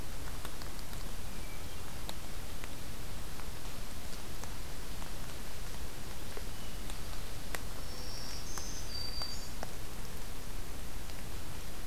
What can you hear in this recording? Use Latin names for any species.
Catharus guttatus, Zenaida macroura, Setophaga virens